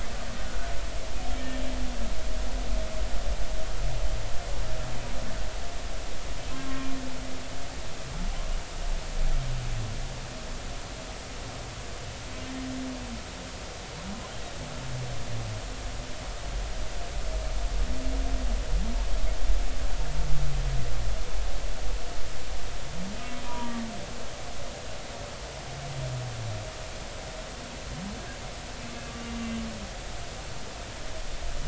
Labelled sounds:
0.5	0.7	humpback whale, 1.4 to 1.5 kHz
6.5	6.9	humpback whale, 0.99 to 1.1 kHz
23.5	23.8	humpback whale, 0.90 to 1.2 kHz
29.1	29.4	humpback whale, 2.8 to 2.9 kHz

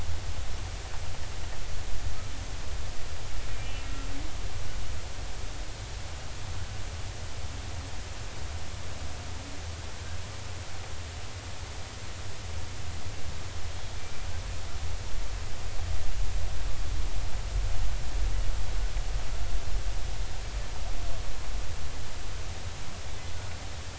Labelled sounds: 23.3	23.6	humpback whale, 1.4 to 1.5 kHz

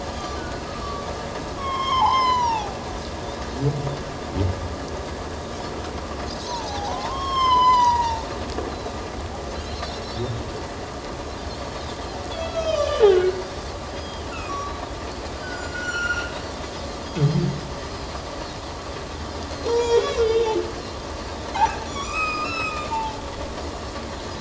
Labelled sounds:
0.4	1.1	humpback whale, 1.1 to 1.6 kHz
1.6	2.8	humpback whale, 0.78 to 7.2 kHz
6.4	8.4	humpback whale, 0.78 to 7.2 kHz
8.7	9.0	Pacific white-sided dolphin, 3.7 to 4.2 kHz
9.8	10.2	Pacific white-sided dolphin, 3.9 to 5.6 kHz
11.6	11.8	Pacific white-sided dolphin, 4.4 to 4.5 kHz
12.3	13.4	humpback whale, 1.1 to 6.7 kHz
13.9	15.7	Pacific white-sided dolphin, 3.2 to 5.0 kHz
14.3	14.7	humpback whale, 1.0 to 1.5 kHz
15.4	16.3	humpback whale, 1.3 to 7.3 kHz
17.0	17.4	Pacific white-sided dolphin, 3.1 to 3.4 kHz
17.8	18.1	Pacific white-sided dolphin, 4.8 to 5.0 kHz
19.5	19.8	Pacific white-sided dolphin, 4.1 to 4.3 kHz
19.6	20.6	humpback whale, 0.81 to 7.2 kHz
21.6	23.2	humpback whale, 0.81 to 7.8 kHz

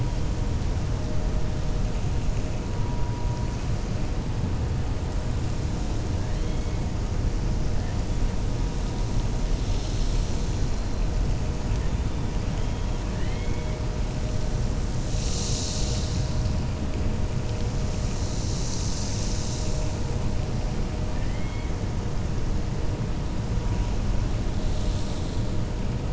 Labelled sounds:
13.1	13.8	killer whale, 1.2 to 3.3 kHz
21.1	21.7	killer whale, 1.6 to 3.3 kHz

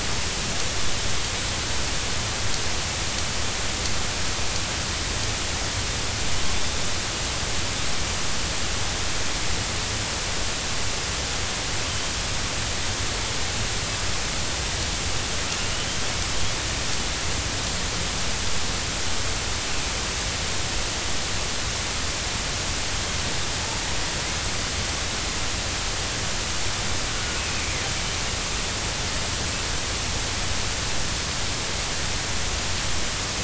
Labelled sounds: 27.2	27.4	killer whale, northern resident, 1.4 to 1.5 kHz

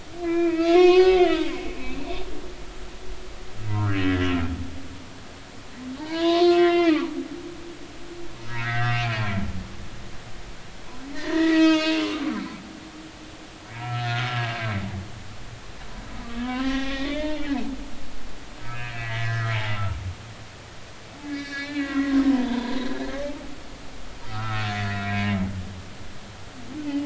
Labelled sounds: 0.2	1.5	humpback whale, 0.93 to 4.9 kHz
3.7	4.3	humpback whale, 1.1 to 2.0 kHz
6.0	7.1	humpback whale, 0.83 to 4.9 kHz
8.5	9.3	humpback whale, 1.2 to 4.8 kHz
11.1	12.4	humpback whale, 0.90 to 6.8 kHz
13.7	14.6	humpback whale, 1.3 to 4.3 kHz
16.1	17.7	humpback whale, 0.80 to 3.8 kHz
18.6	19.5	humpback whale, 1.2 to 2.2 kHz
21.2	22.9	humpback whale, 0.90 to 5.4 kHz
24.3	25.4	humpback whale, 1.2 to 2.5 kHz

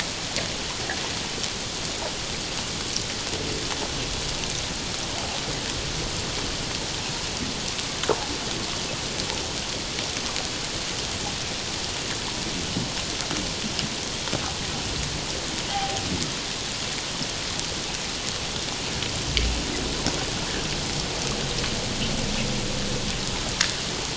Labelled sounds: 15.7	16.0	humpback whale, 0.78 to 0.88 kHz

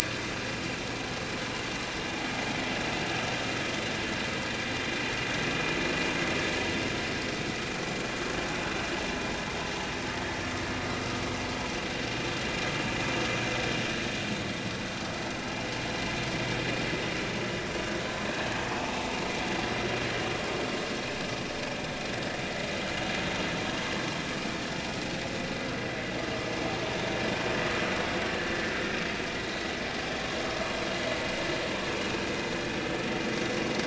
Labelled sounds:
29.4	29.6	vessel noise, 3.8 to 3.9 kHz

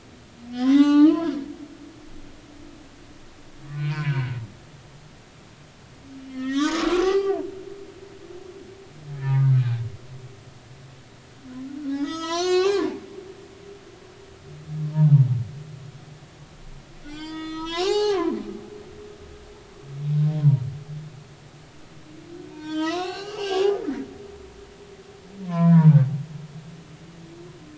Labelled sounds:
0.5	1.3	humpback whale, 0.80 to 6.4 kHz
3.7	4.3	humpback whale, 0.90 to 2.9 kHz
6.3	7.4	humpback whale, 0.80 to 4.6 kHz
9.2	9.6	humpback whale, 1.2 to 1.8 kHz
11.9	13.0	humpback whale, 0.80 to 7.6 kHz
17.0	18.4	humpback whale, 0.80 to 7.6 kHz
22.5	24.0	humpback whale, 0.80 to 7.3 kHz
25.4	25.9	humpback whale, 0.90 to 2.4 kHz

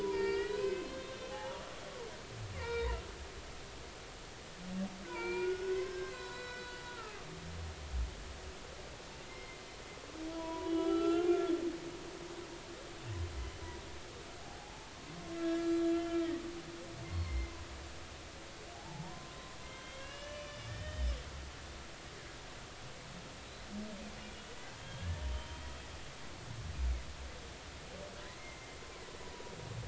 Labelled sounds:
0.0	1.6	humpback whale, 0.80 to 5.3 kHz
2.6	3.0	humpback whale, 0.86 to 4.8 kHz
5.0	7.1	humpback whale, 0.86 to 5.5 kHz
9.3	9.6	humpback whale, 2.0 to 2.2 kHz
10.3	11.5	humpback whale, 0.93 to 4.1 kHz
14.4	16.3	humpback whale, 0.80 to 7.5 kHz
17.0	17.5	humpback whale, 1.0 to 2.2 kHz
18.7	21.1	humpback whale, 0.80 to 6.0 kHz
24.8	25.7	humpback whale, 3.0 to 3.3 kHz
28.4	29.5	humpback whale, 0.93 to 2.2 kHz

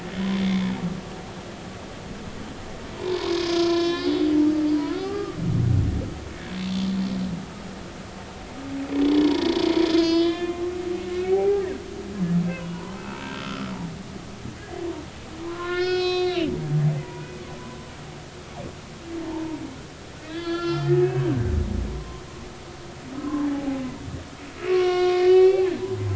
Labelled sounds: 0.4	0.7	humpback whale, 3.3 to 3.6 kHz
2.9	4.1	humpback whale, 0.83 to 6.4 kHz
4.6	5.4	humpback whale, 0.90 to 4.7 kHz
9.2	9.5	humpback whale, 0.90 to 1.1 kHz
9.8	11.6	humpback whale, 0.80 to 5.2 kHz
13.0	13.7	humpback whale, 0.86 to 1.4 kHz
15.4	16.5	humpback whale, 0.96 to 5.5 kHz
16.9	17.3	humpback whale, 0.90 to 4.8 kHz
19.3	19.6	humpback whale, 0.83 to 1.0 kHz
20.3	21.5	humpback whale, 1.2 to 5.2 kHz
21.9	22.2	humpback whale, 0.96 to 1.3 kHz
23.2	23.8	humpback whale, 0.80 to 1.2 kHz
24.7	25.7	humpback whale, 1.0 to 4.6 kHz

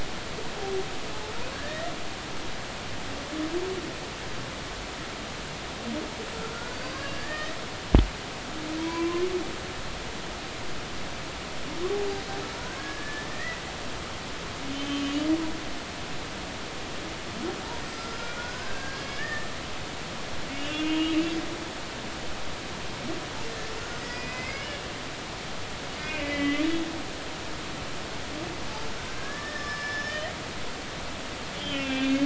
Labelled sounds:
1.5	1.9	humpback whale, 1.6 to 2.0 kHz
6.4	7.5	humpback whale, 0.99 to 4.9 kHz
8.8	9.2	humpback whale, 0.93 to 2.4 kHz
12.8	13.6	humpback whale, 1.6 to 2.0 kHz
14.7	15.3	humpback whale, 1.1 to 3.2 kHz
17.9	19.5	humpback whale, 1.2 to 5.2 kHz
20.6	22.2	humpback whale, 2.4 to 3.5 kHz
24.0	24.9	humpback whale, 1.6 to 5.4 kHz
26.0	26.6	humpback whale, 1.9 to 3.2 kHz
29.2	30.3	humpback whale, 1.1 to 5.5 kHz
31.5	32.2	humpback whale, 2.3 to 3.6 kHz

